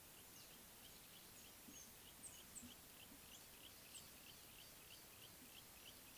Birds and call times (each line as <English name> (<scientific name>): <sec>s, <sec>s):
Yellow-breasted Apalis (Apalis flavida): 4.6s